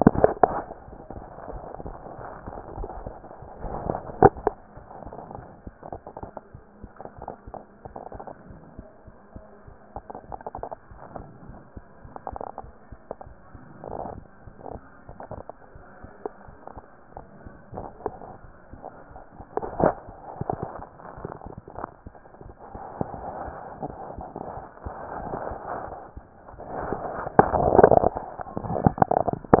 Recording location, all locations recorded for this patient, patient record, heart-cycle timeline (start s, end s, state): mitral valve (MV)
pulmonary valve (PV)+tricuspid valve (TV)+mitral valve (MV)
#Age: Child
#Sex: Female
#Height: 123.0 cm
#Weight: 25.8 kg
#Pregnancy status: False
#Murmur: Absent
#Murmur locations: nan
#Most audible location: nan
#Systolic murmur timing: nan
#Systolic murmur shape: nan
#Systolic murmur grading: nan
#Systolic murmur pitch: nan
#Systolic murmur quality: nan
#Diastolic murmur timing: nan
#Diastolic murmur shape: nan
#Diastolic murmur grading: nan
#Diastolic murmur pitch: nan
#Diastolic murmur quality: nan
#Outcome: Normal
#Campaign: 2014 screening campaign
0.00	5.10	unannotated
5.10	5.12	S2
5.12	5.34	diastole
5.34	5.46	S1
5.46	5.64	systole
5.64	5.74	S2
5.74	5.92	diastole
5.92	6.02	S1
6.02	6.20	systole
6.20	6.30	S2
6.30	6.54	diastole
6.54	6.64	S1
6.64	6.82	systole
6.82	6.90	S2
6.90	7.18	diastole
7.18	7.30	S1
7.30	7.48	systole
7.48	7.56	S2
7.56	7.86	diastole
7.86	7.98	S1
7.98	8.14	systole
8.14	8.22	S2
8.22	8.48	diastole
8.48	8.60	S1
8.60	8.76	systole
8.76	8.86	S2
8.86	9.08	diastole
9.08	9.18	S1
9.18	9.34	systole
9.34	9.44	S2
9.44	9.68	diastole
9.68	9.78	S1
9.78	9.94	systole
9.94	10.02	S2
10.02	10.28	diastole
10.28	10.40	S1
10.40	10.56	systole
10.56	10.66	S2
10.66	10.92	diastole
10.92	11.02	S1
11.02	11.16	systole
11.16	11.26	S2
11.26	11.48	diastole
11.48	29.60	unannotated